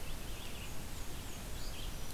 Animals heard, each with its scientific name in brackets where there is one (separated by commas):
Red-eyed Vireo (Vireo olivaceus), Black-and-white Warbler (Mniotilta varia)